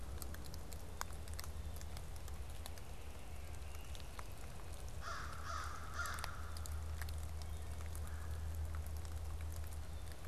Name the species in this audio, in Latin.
Corvus brachyrhynchos, Melanerpes carolinus